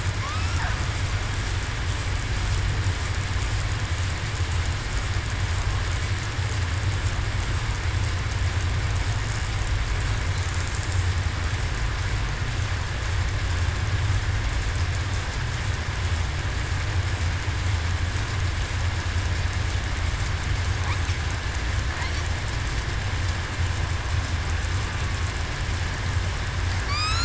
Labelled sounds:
0.2	0.6	killer whale, southern resident, 0.98 to 1.4 kHz
26.9	27.2	killer whale, southern resident, 4.5 to 5.6 kHz

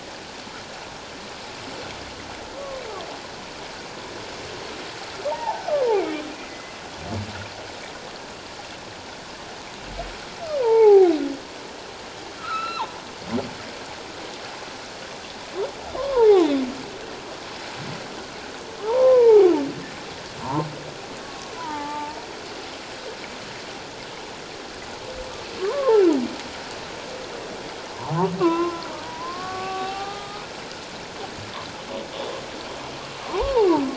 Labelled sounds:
2.5	2.8	humpback whale, 1.0 to 1.2 kHz
5.3	6.0	humpback whale, 0.78 to 1.3 kHz
6.4	6.7	humpback whale, 1.8 to 2.1 kHz
10.6	11.1	humpback whale, 0.78 to 1.0 kHz
12.4	12.9	humpback whale, 0.81 to 4.2 kHz
16.0	16.6	humpback whale, 0.78 to 4.0 kHz
18.8	19.5	humpback whale, 0.78 to 1.4 kHz
20.4	22.2	humpback whale, 0.78 to 1.5 kHz
25.7	26.1	humpback whale, 0.78 to 1.2 kHz
27.9	30.5	humpback whale, 0.78 to 2.8 kHz
33.4	33.7	humpback whale, 0.78 to 1.2 kHz

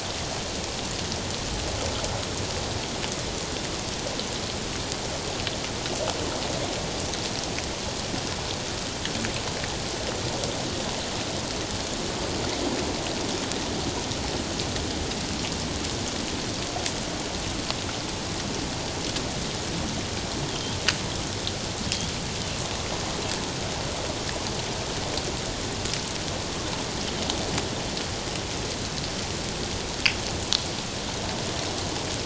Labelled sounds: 20.5	20.8	killer whale, 3.1 to 3.4 kHz

